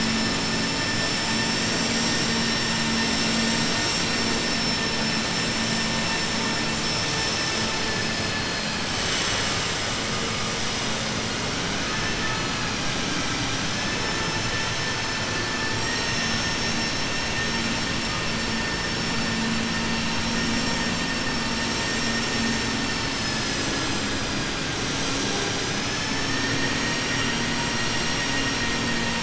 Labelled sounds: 25.9	26.6	vessel noise, 0.87 to 2.7 kHz

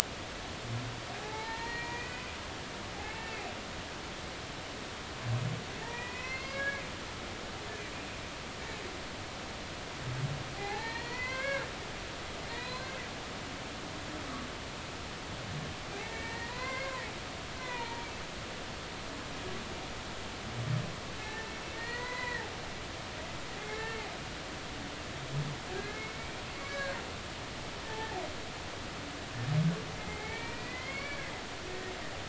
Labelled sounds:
1.2	2.3	humpback whale, 0.80 to 4.3 kHz
3.0	3.5	humpback whale, 1.7 to 2.7 kHz
5.8	6.9	humpback whale, 0.83 to 5.0 kHz
10.6	11.7	humpback whale, 0.80 to 4.8 kHz
12.5	12.9	humpback whale, 0.90 to 4.3 kHz
15.9	17.1	humpback whale, 0.80 to 2.3 kHz
17.6	18.1	humpback whale, 0.86 to 2.5 kHz
21.2	21.5	humpback whale, 1.7 to 1.9 kHz
21.7	22.5	humpback whale, 0.93 to 4.4 kHz
23.7	24.0	humpback whale, 1.6 to 1.9 kHz
25.7	27.0	humpback whale, 1.5 to 2.4 kHz
30.0	31.3	humpback whale, 0.80 to 4.6 kHz

